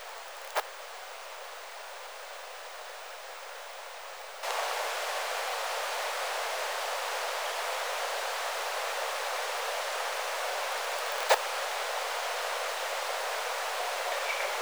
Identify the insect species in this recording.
Poecilimon nobilis